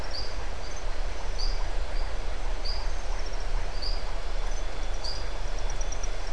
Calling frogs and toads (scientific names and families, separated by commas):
Adenomera marmorata (Leptodactylidae)